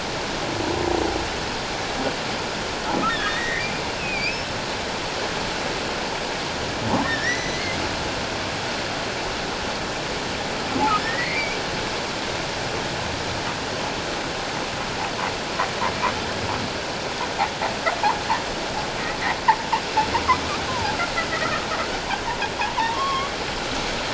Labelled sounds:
3.2	4.4	humpback whale, 1.8 to 2.8 kHz
7.0	7.8	humpback whale, 1.7 to 6.1 kHz
11.0	11.6	humpback whale, 1.7 to 2.5 kHz
20.7	21.0	humpback whale, 0.78 to 1.1 kHz
21.3	21.7	humpback whale, 1.2 to 1.4 kHz
22.9	23.3	humpback whale, 1.0 to 3.3 kHz

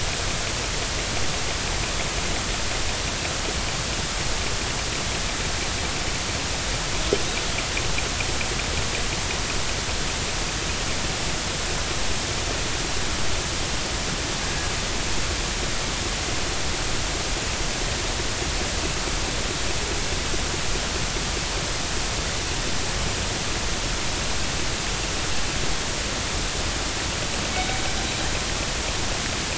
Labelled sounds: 14.4	14.7	killer whale, northern resident, G clan, 1.6 to 1.7 kHz
27.5	27.8	killer whale, northern resident, G clan, 2.2 to 2.3 kHz

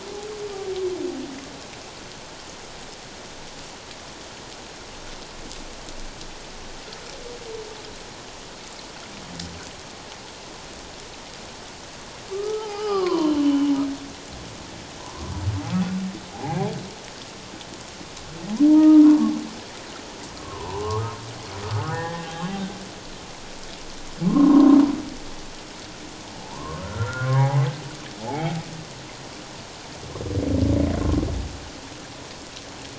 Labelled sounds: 12.3	13.7	humpback whale, 0.78 to 5.2 kHz
18.7	19.4	humpback whale, 0.88 to 1.3 kHz
20.4	21.1	humpback whale, 0.78 to 1.3 kHz
21.7	22.6	humpback whale, 0.78 to 3.2 kHz
24.2	24.8	humpback whale, 0.94 to 1.1 kHz
26.4	27.7	humpback whale, 0.78 to 1.6 kHz
28.2	28.5	humpback whale, 0.78 to 0.94 kHz

